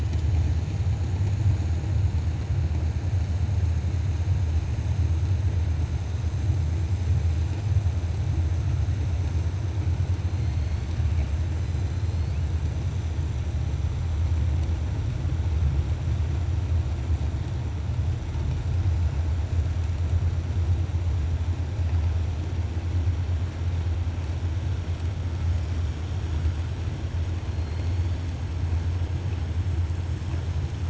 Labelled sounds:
10.3	10.8	killer whale, 4.1 to 4.5 kHz
27.5	28.1	killer whale, 4.0 to 4.5 kHz

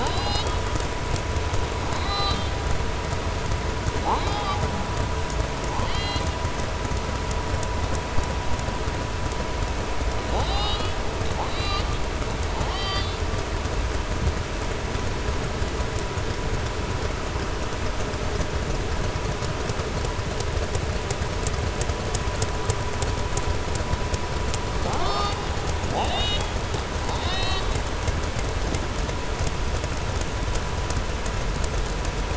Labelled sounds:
1.9	2.5	killer whale, southern resident, 0.78 to 5.6 kHz
5.6	6.4	killer whale, southern resident, 0.83 to 7.8 kHz
10.2	11.0	killer whale, southern resident, 0.45 to 5.0 kHz
11.3	11.9	killer whale, southern resident, 0.77 to 4.9 kHz
12.5	13.2	killer whale, southern resident, 0.76 to 5.5 kHz
25.8	26.5	killer whale, southern resident, 0.59 to 7.9 kHz
27.0	27.7	killer whale, southern resident, 0.75 to 6.1 kHz

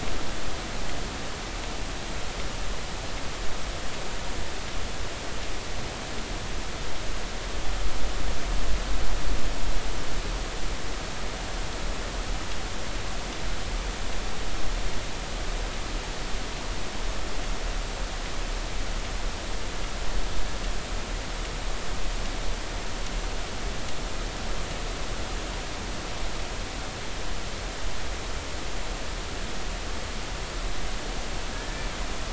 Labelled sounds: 31.5	31.9	humpback whale, 1.6 to 1.8 kHz

